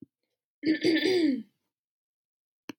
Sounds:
Throat clearing